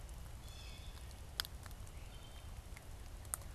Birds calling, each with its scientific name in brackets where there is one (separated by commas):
Wood Thrush (Hylocichla mustelina), Blue Jay (Cyanocitta cristata)